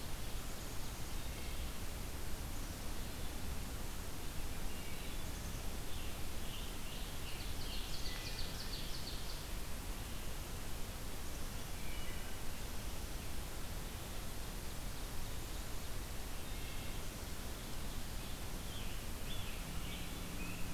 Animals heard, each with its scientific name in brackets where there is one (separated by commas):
Wood Thrush (Hylocichla mustelina), Ovenbird (Seiurus aurocapilla), Scarlet Tanager (Piranga olivacea), Black-capped Chickadee (Poecile atricapillus)